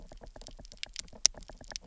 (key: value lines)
label: biophony, knock
recorder: SoundTrap 300